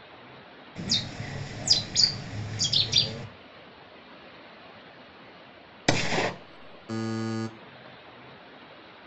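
At 0.75 seconds, you can hear a bird. Then, at 5.85 seconds, gunfire is heard. Finally, at 6.88 seconds, there is the sound of an alarm. An even noise sits in the background.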